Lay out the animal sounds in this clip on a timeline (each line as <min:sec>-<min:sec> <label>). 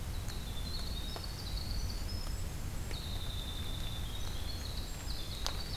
0:00.0-0:05.8 Winter Wren (Troglodytes hiemalis)